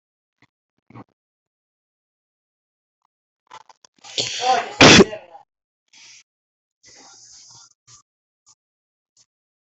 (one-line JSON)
{"expert_labels": [{"quality": "good", "cough_type": "unknown", "dyspnea": false, "wheezing": false, "stridor": false, "choking": false, "congestion": false, "nothing": true, "diagnosis": "healthy cough", "severity": "pseudocough/healthy cough"}], "age": 25, "gender": "male", "respiratory_condition": false, "fever_muscle_pain": false, "status": "COVID-19"}